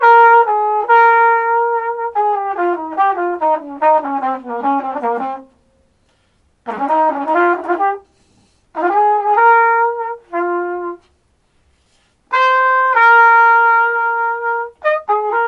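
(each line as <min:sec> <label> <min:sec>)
0:00.0 Trumpet music plays. 0:05.4
0:06.7 Trumpet music plays. 0:08.0
0:08.8 Trumpet music plays. 0:11.0
0:12.3 Trumpet music plays. 0:15.5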